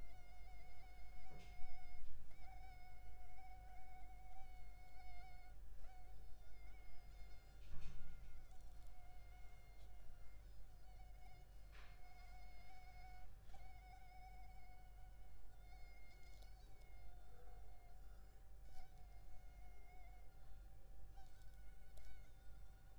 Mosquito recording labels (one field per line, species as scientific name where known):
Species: Culex pipiens complex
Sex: male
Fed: unfed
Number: one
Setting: cup